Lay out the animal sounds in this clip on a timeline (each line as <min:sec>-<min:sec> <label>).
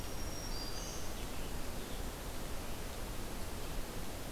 0:00.0-0:01.2 Black-throated Green Warbler (Setophaga virens)